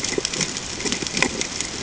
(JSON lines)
{"label": "ambient", "recorder": "HydroMoth"}